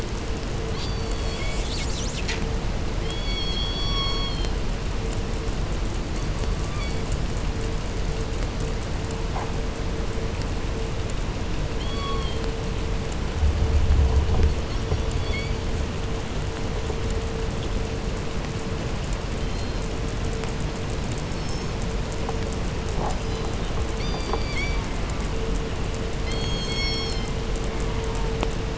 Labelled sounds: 0.5	1.8	killer whale, southern resident, call S16, 1.2 to 5.1 kHz
2.9	4.7	killer whale, southern resident, call S16, 0.69 to 7.0 kHz
5.9	7.2	killer whale, southern resident, call S16, 0.84 to 5.0 kHz
11.6	12.5	killer whale, southern resident, call S16, 0.61 to 4.8 kHz
14.4	15.6	killer whale, southern resident, call S16, 1.8 to 6.0 kHz
19.2	20.0	killer whale, southern resident, call S17, 2.8 to 4.4 kHz
21.2	21.9	killer whale, southern resident, call S17, 2.9 to 6.7 kHz
22.9	23.7	killer whale, southern resident, call S17, 2.7 to 6.4 kHz
23.9	24.9	killer whale, southern resident, call S16, 1.7 to 8.0 kHz
24.7	25.5	killer whale, southern resident, J pod, call S04, 0.46 to 2.5 kHz
26.2	27.5	killer whale, southern resident, call S17, 1.6 to 8.0 kHz
27.6	28.5	killer whale, southern resident, J pod, call S04, 0.59 to 2.5 kHz

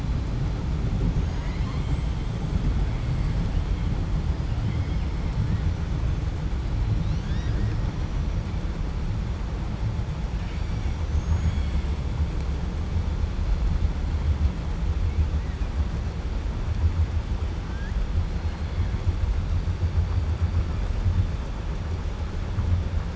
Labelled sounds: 10.9	11.9	killer whale, 0.92 to 7.8 kHz

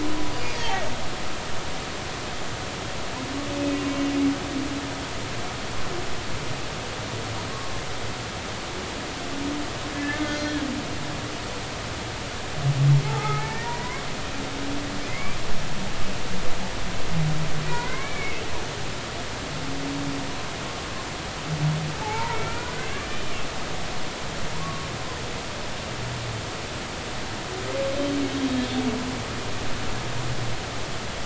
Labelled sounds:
0.3	0.8	humpback whale, 0.80 to 4.9 kHz
9.9	10.6	humpback whale, 1.4 to 5.8 kHz
13.1	14.1	humpback whale, 0.80 to 2.4 kHz
15.1	15.4	humpback whale, 2.0 to 2.4 kHz
17.6	18.4	humpback whale, 0.90 to 2.5 kHz
22.0	23.2	humpback whale, 0.80 to 2.5 kHz
24.6	24.9	humpback whale, 1.1 to 1.2 kHz
28.5	28.8	humpback whale, 3.2 to 3.4 kHz

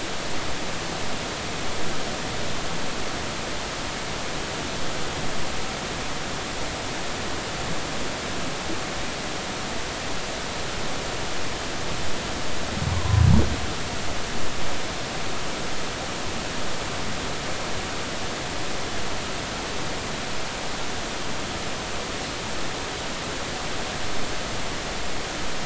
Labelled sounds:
13.9	14.3	Pacific white-sided dolphin, 0.93 to 1.1 kHz

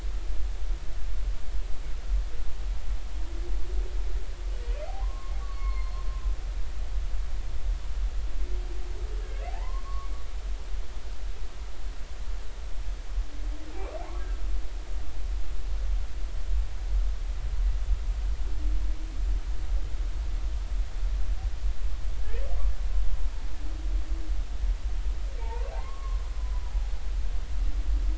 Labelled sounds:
4.9	6.0	humpback whale, 0.80 to 4.5 kHz
9.5	10.1	humpback whale, 0.80 to 1.3 kHz
22.2	22.5	humpback whale, 1.6 to 1.9 kHz
25.4	26.2	humpback whale, 0.80 to 1.2 kHz

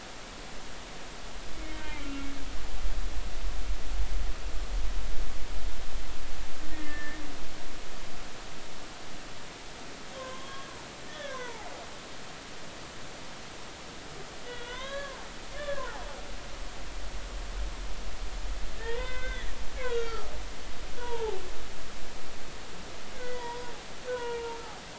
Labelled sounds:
1.5	2.3	humpback whale, 1.3 to 2.5 kHz
6.7	7.2	humpback whale, 1.7 to 2.2 kHz
10.2	10.7	humpback whale, 0.99 to 3.3 kHz
11.1	11.7	humpback whale, 0.80 to 1.9 kHz
14.4	15.2	humpback whale, 0.80 to 4.0 kHz
15.6	16.0	humpback whale, 0.93 to 1.8 kHz
18.8	20.3	humpback whale, 0.86 to 3.9 kHz
21.0	21.4	humpback whale, 0.80 to 1.0 kHz
23.2	23.7	humpback whale, 0.86 to 2.0 kHz
24.1	24.6	humpback whale, 0.86 to 1.6 kHz

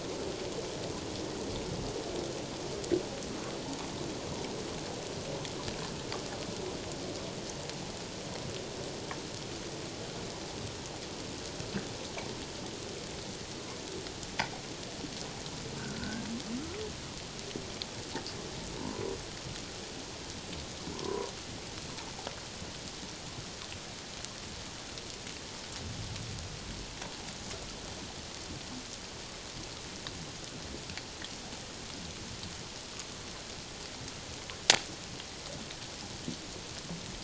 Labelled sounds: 15.8	16.3	humpback whale, 1.3 to 1.7 kHz
18.8	19.1	humpback whale, 0.88 to 1.1 kHz
20.9	21.3	humpback whale, 0.84 to 1.1 kHz

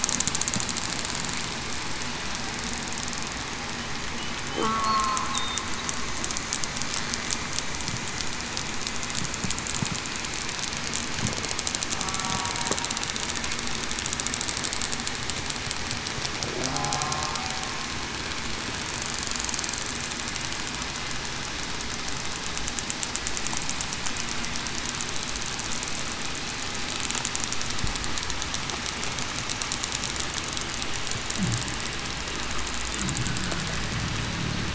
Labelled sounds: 4.6	5.2	killer whale, southern resident, 1.2 to 1.4 kHz
12.0	12.5	killer whale, southern resident, 1.1 to 1.2 kHz

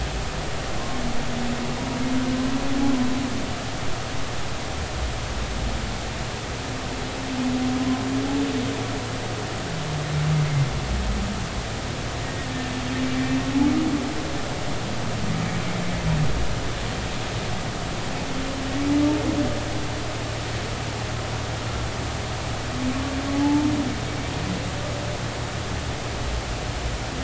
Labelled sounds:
12.2	12.5	humpback whale, 1.8 to 2.0 kHz
23.3	23.7	humpback whale, 0.80 to 0.93 kHz

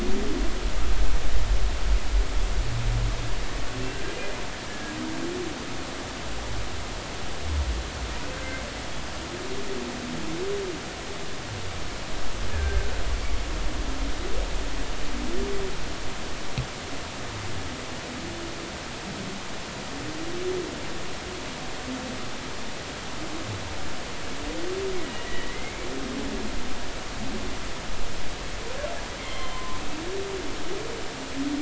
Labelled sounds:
3.9	5.0	humpback whale, 1.5 to 1.8 kHz
8.3	8.6	humpback whale, 1.5 to 1.6 kHz
12.5	12.9	humpback whale, 1.5 to 1.8 kHz
25.3	25.9	humpback whale, 1.8 to 2.3 kHz
29.2	29.8	humpback whale, 0.90 to 3.4 kHz

